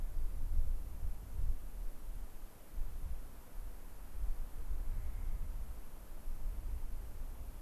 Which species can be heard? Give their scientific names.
Nucifraga columbiana